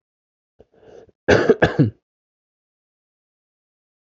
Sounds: Cough